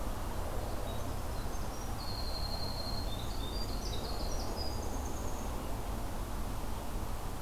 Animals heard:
Winter Wren (Troglodytes hiemalis)

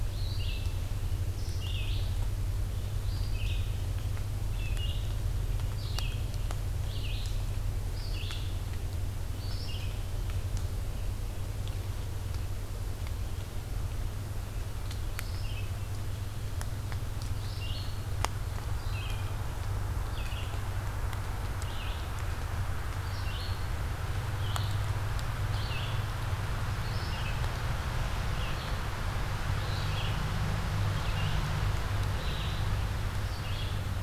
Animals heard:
Red-eyed Vireo (Vireo olivaceus)

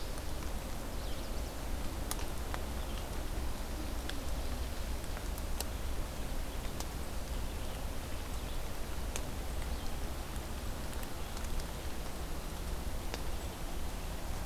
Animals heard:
Red-eyed Vireo (Vireo olivaceus)
Chestnut-sided Warbler (Setophaga pensylvanica)

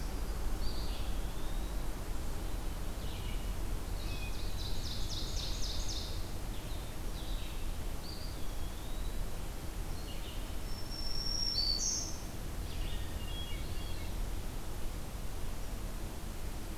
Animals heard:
Hermit Thrush (Catharus guttatus)
Red-eyed Vireo (Vireo olivaceus)
Black-throated Green Warbler (Setophaga virens)
Eastern Wood-Pewee (Contopus virens)
Ovenbird (Seiurus aurocapilla)

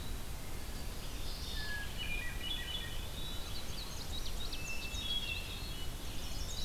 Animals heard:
Indigo Bunting (Passerina cyanea)
Red-eyed Vireo (Vireo olivaceus)
Chestnut-sided Warbler (Setophaga pensylvanica)
Hermit Thrush (Catharus guttatus)
Eastern Wood-Pewee (Contopus virens)

